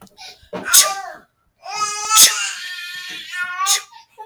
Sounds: Sneeze